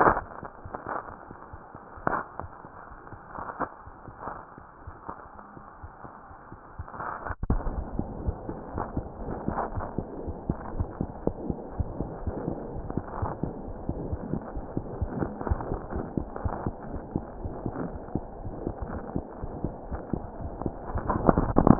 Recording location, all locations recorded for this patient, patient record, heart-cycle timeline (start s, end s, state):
aortic valve (AV)
aortic valve (AV)+mitral valve (MV)
#Age: Infant
#Sex: Male
#Height: 52.0 cm
#Weight: 3.7 kg
#Pregnancy status: False
#Murmur: Absent
#Murmur locations: nan
#Most audible location: nan
#Systolic murmur timing: nan
#Systolic murmur shape: nan
#Systolic murmur grading: nan
#Systolic murmur pitch: nan
#Systolic murmur quality: nan
#Diastolic murmur timing: nan
#Diastolic murmur shape: nan
#Diastolic murmur grading: nan
#Diastolic murmur pitch: nan
#Diastolic murmur quality: nan
#Outcome: Abnormal
#Campaign: 2015 screening campaign
0.00	10.06	unannotated
10.06	10.24	diastole
10.24	10.38	S1
10.38	10.48	systole
10.48	10.60	S2
10.60	10.76	diastole
10.76	10.92	S1
10.92	10.98	systole
10.98	11.08	S2
11.08	11.24	diastole
11.24	11.38	S1
11.38	11.44	systole
11.44	11.58	S2
11.58	11.76	diastole
11.76	11.94	S1
11.94	11.98	systole
11.98	12.08	S2
12.08	12.22	diastole
12.22	12.36	S1
12.36	12.46	systole
12.46	12.56	S2
12.56	12.72	diastole
12.72	12.86	S1
12.86	12.94	systole
12.94	13.04	S2
13.04	13.18	diastole
13.18	13.34	S1
13.34	13.42	systole
13.42	13.52	S2
13.52	13.66	diastole
13.66	13.76	S1
13.76	13.87	systole
13.87	13.94	S2
13.94	14.10	diastole
14.10	14.20	S1
14.20	14.30	systole
14.30	14.40	S2
14.40	14.54	diastole
14.54	14.68	S1
14.68	14.74	systole
14.74	14.84	S2
14.84	15.00	diastole
15.00	15.14	S1
15.14	15.18	systole
15.18	15.34	S2
15.34	15.50	diastole
15.50	15.64	S1
15.64	15.68	systole
15.68	15.80	S2
15.80	15.94	diastole
15.94	16.06	S1
16.06	16.15	systole
16.15	16.28	S2
16.28	16.42	diastole
16.42	16.54	S1
16.54	16.64	systole
16.64	16.74	S2
16.74	16.90	diastole
16.90	17.04	S1
17.04	17.14	systole
17.14	17.26	S2
17.26	17.42	diastole
17.42	17.54	S1
17.54	17.64	systole
17.64	17.74	S2
17.74	17.92	diastole
17.92	18.02	S1
18.02	18.14	systole
18.14	18.23	S2
18.23	18.42	diastole
18.42	18.56	S1
18.56	18.64	systole
18.64	18.76	S2
18.76	18.90	diastole
18.90	19.04	S1
19.04	19.14	systole
19.14	19.26	S2
19.26	19.42	diastole
19.42	19.56	S1
19.56	19.62	systole
19.62	19.74	S2
19.74	19.90	diastole
19.90	20.02	S1
20.02	20.12	systole
20.12	20.24	S2
20.24	20.40	diastole
20.40	21.79	unannotated